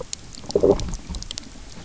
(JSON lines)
{"label": "biophony, low growl", "recorder": "SoundTrap 300"}